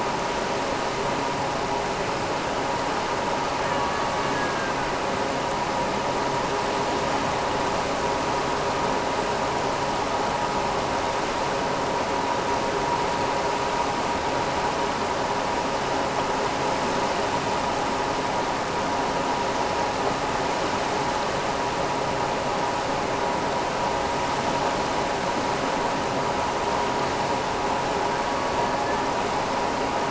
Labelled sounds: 3.5	4.9	killer whale, Bigg's (transient), AT1 transient, 1.0 to 2.9 kHz
28.1	29.1	killer whale, Bigg's (transient), AT1 transient, 1.4 to 4.8 kHz

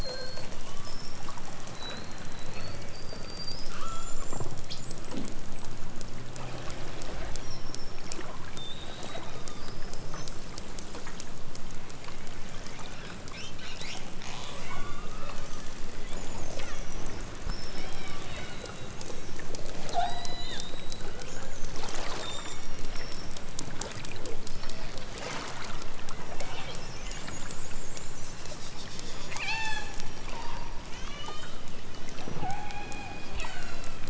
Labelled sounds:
0.0	0.5	killer whale, southern Alaska resident, 0.37 to 2.0 kHz
3.7	4.5	killer whale, southern Alaska resident, 0.92 to 7.6 kHz
7.3	8.2	killer whale, southern Alaska resident, 1.5 to 8.0 kHz
8.5	9.8	killer whale, southern Alaska resident, 2.7 to 6.2 kHz
12.5	13.3	killer whale, southern Alaska resident, 1.6 to 5.9 kHz
14.1	15.4	killer whale, southern Alaska resident, 0.64 to 8.0 kHz
16.5	17.0	killer whale, southern Alaska resident, 0.64 to 6.9 kHz
17.7	19.0	killer whale, southern Alaska resident, 0.92 to 8.0 kHz
19.9	20.7	killer whale, southern Alaska resident, 0.41 to 8.0 kHz
20.9	21.5	killer whale, southern Alaska resident, 0.78 to 3.6 kHz
22.6	23.2	killer whale, southern Alaska resident, 2.1 to 4.7 kHz
24.5	25.0	killer whale, southern Alaska resident, 1.4 to 5.7 kHz
27.9	28.6	killer whale, southern Alaska resident, 2.3 to 5.7 kHz
29.3	29.9	killer whale, southern Alaska resident, 0.46 to 8.0 kHz
30.3	31.6	killer whale, southern Alaska resident, 0.60 to 8.0 kHz
32.4	34.0	killer whale, southern Alaska resident, 0.46 to 8.0 kHz

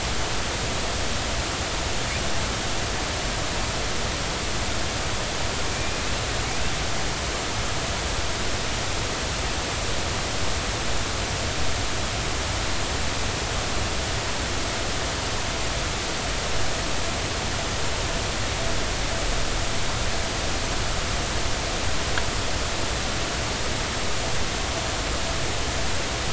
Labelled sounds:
5.7	6.0	killer whale, Bigg's (transient), 2.3 to 2.5 kHz

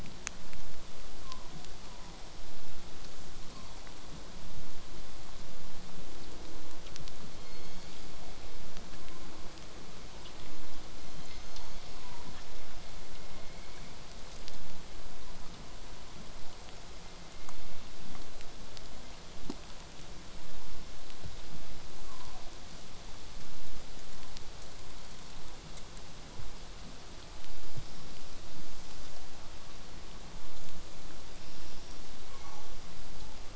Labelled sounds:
1.2	2.2	killer whale, southern resident, 0.50 to 1.3 kHz
3.5	3.8	killer whale, southern resident, 0.74 to 1.2 kHz
7.3	8.3	killer whale, southern resident, 0.43 to 6.7 kHz
9.0	9.4	killer whale, southern resident, 0.85 to 1.2 kHz
10.9	12.3	killer whale, southern resident, 0.74 to 6.8 kHz
13.3	13.7	killer whale, southern resident, 4.0 to 4.5 kHz
31.4	32.0	killer whale, southern resident, 5.4 to 5.8 kHz
32.3	32.8	killer whale, southern resident, 0.62 to 6.0 kHz
33.1	33.4	killer whale, southern resident, 0.66 to 1.0 kHz

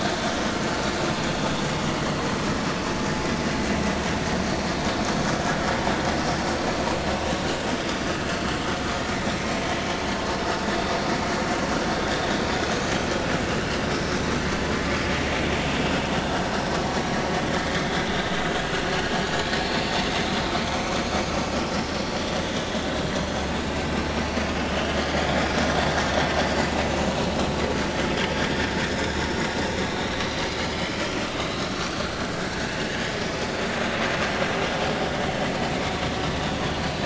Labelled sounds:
3.1	3.3	vessel noise, 4.7 to 5.0 kHz
28.9	29.2	vessel noise, 3.5 to 3.8 kHz
31.7	32.3	vessel noise, 4.2 to 4.6 kHz

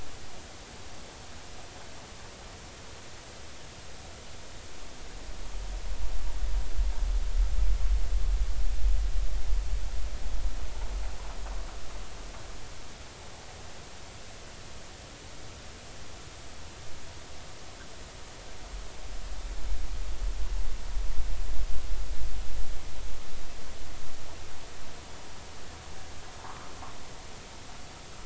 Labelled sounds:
26.4	26.7	vessel noise, 0.83 to 1.4 kHz

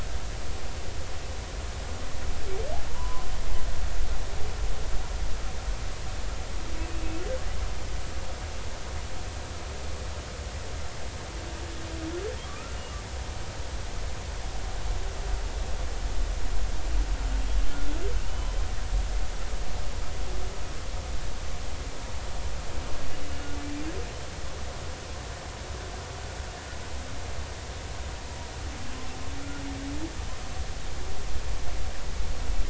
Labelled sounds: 2.9	3.3	humpback whale, 0.90 to 1.2 kHz
12.5	12.8	humpback whale, 1.1 to 1.4 kHz
18.2	18.6	humpback whale, 2.7 to 3.1 kHz

